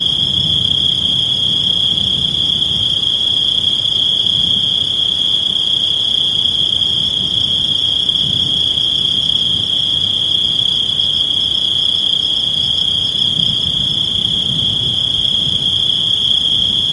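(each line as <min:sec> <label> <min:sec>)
0:00.0 Wind rushes agitatedly. 0:16.8
0:00.0 Crickets chirp repeatedly. 0:16.9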